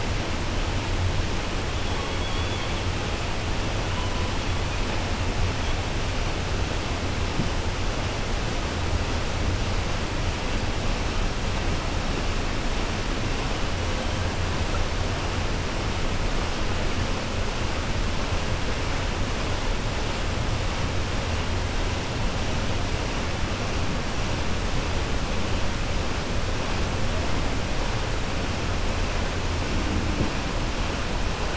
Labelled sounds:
2.1	2.7	killer whale, 2.3 to 4.4 kHz

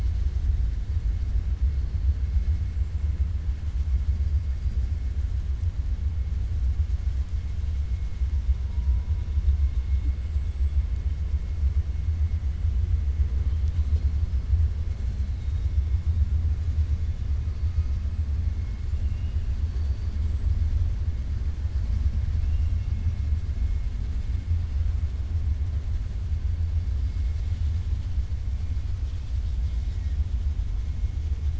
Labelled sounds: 10.2	10.7	killer whale, 7.4 to 7.9 kHz
15.3	15.7	killer whale, 3.4 to 4.0 kHz
19.6	20.2	killer whale, 3.5 to 5.1 kHz

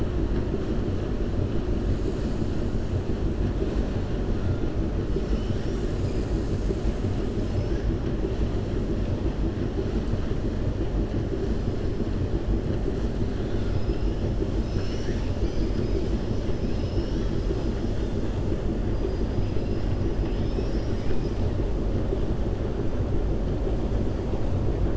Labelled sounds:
13.3	14.0	killer whale, 2.8 to 5.2 kHz

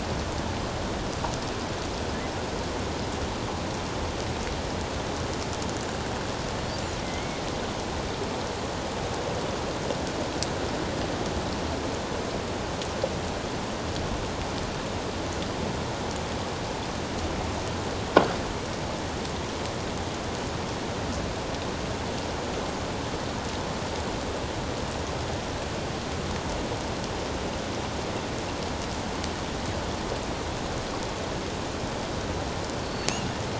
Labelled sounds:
7.0	7.4	killer whale, offshore, 2.0 to 2.3 kHz
32.8	33.1	killer whale, offshore, 4.3 to 4.5 kHz

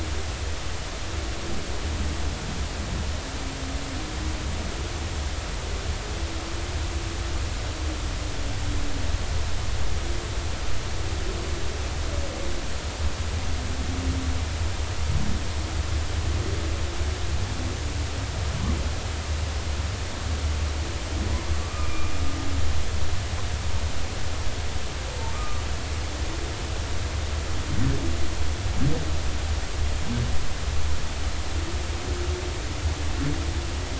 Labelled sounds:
21.7	22.1	humpback whale, 2.2 to 2.5 kHz
25.3	25.6	humpback whale, 1.1 to 1.3 kHz

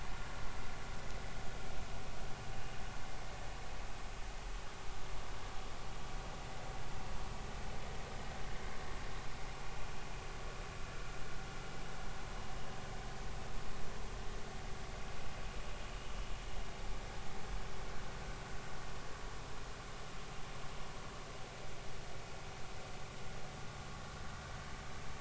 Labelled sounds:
15.9	16.1	vessel noise, 2.8 to 3.1 kHz

